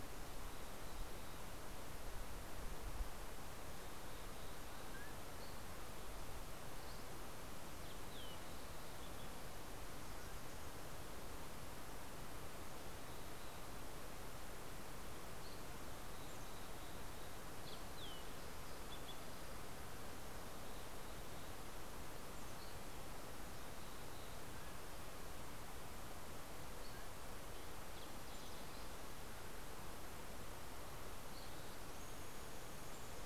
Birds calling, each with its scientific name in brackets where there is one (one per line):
Mountain Chickadee (Poecile gambeli)
Fox Sparrow (Passerella iliaca)
Dusky Flycatcher (Empidonax oberholseri)
Mountain Quail (Oreortyx pictus)